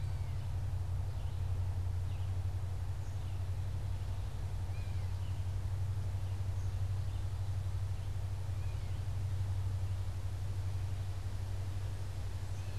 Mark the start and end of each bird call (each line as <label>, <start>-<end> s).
Black-capped Chickadee (Poecile atricapillus), 0.0-12.8 s
Red-eyed Vireo (Vireo olivaceus), 0.0-12.8 s
Gray Catbird (Dumetella carolinensis), 4.6-5.1 s